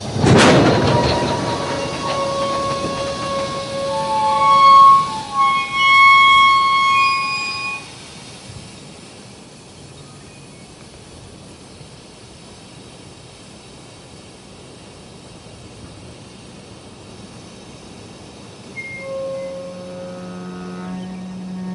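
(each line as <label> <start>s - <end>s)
The squeaky noise of a train stopping is heard, preceded by the sound of a strong gust of wind. 0.2s - 8.9s
A train whistle blowing near the rails. 18.0s - 21.7s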